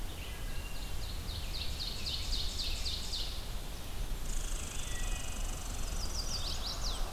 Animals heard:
Chestnut-sided Warbler (Setophaga pensylvanica)
Ovenbird (Seiurus aurocapilla)
Red Squirrel (Tamiasciurus hudsonicus)
Wood Thrush (Hylocichla mustelina)

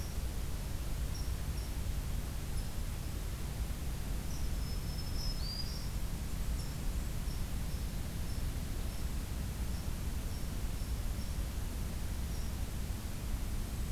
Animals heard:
Black-throated Green Warbler (Setophaga virens)
Blackburnian Warbler (Setophaga fusca)
Red Squirrel (Tamiasciurus hudsonicus)

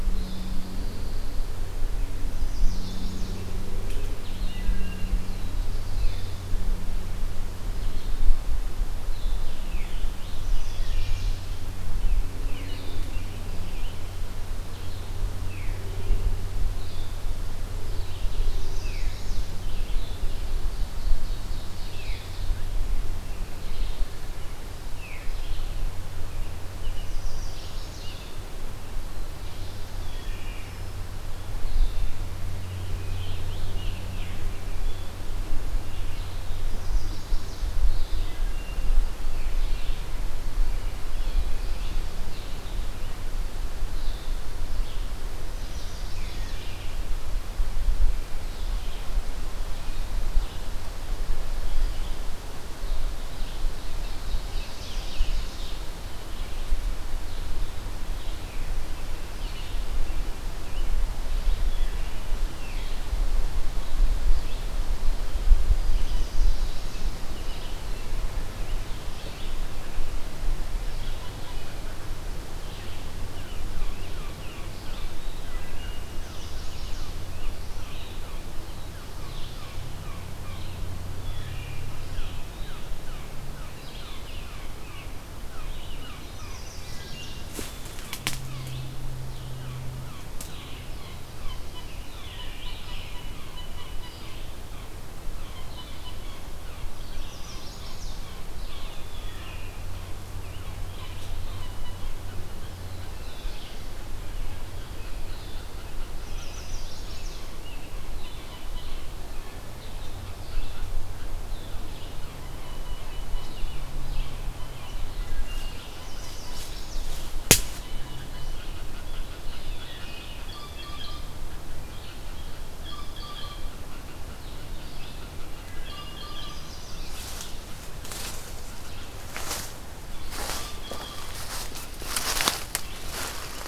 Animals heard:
Chestnut-sided Warbler (Setophaga pensylvanica)
Blue-headed Vireo (Vireo solitarius)
American Crow (Corvus brachyrhynchos)
Scarlet Tanager (Piranga olivacea)
Ovenbird (Seiurus aurocapilla)
Veery (Catharus fuscescens)
Pine Warbler (Setophaga pinus)
Canada Goose (Branta canadensis)
Red-eyed Vireo (Vireo olivaceus)
Wood Thrush (Hylocichla mustelina)
Mallard (Anas platyrhynchos)

